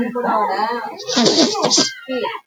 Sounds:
Sniff